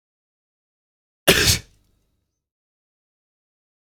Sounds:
Sneeze